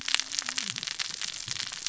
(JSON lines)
{"label": "biophony, cascading saw", "recorder": "SoundTrap 600 or HydroMoth"}